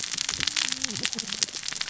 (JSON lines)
{"label": "biophony, cascading saw", "recorder": "SoundTrap 600 or HydroMoth"}